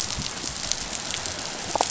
{"label": "biophony, damselfish", "recorder": "SoundTrap 500"}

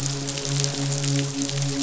{"label": "biophony, midshipman", "recorder": "SoundTrap 500"}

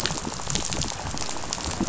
{"label": "biophony, rattle", "recorder": "SoundTrap 500"}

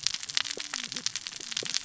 {"label": "biophony, cascading saw", "recorder": "SoundTrap 600 or HydroMoth"}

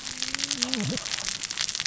{"label": "biophony, cascading saw", "recorder": "SoundTrap 600 or HydroMoth"}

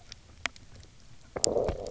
{"label": "biophony, low growl", "recorder": "SoundTrap 300"}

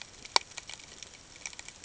{"label": "ambient", "recorder": "HydroMoth"}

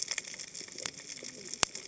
{"label": "biophony, cascading saw", "recorder": "HydroMoth"}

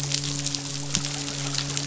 {"label": "biophony, midshipman", "recorder": "SoundTrap 500"}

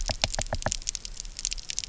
{"label": "biophony, knock", "recorder": "SoundTrap 300"}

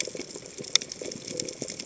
{"label": "biophony", "recorder": "HydroMoth"}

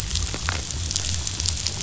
{"label": "biophony", "recorder": "SoundTrap 500"}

